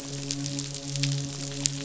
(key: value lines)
label: biophony, midshipman
recorder: SoundTrap 500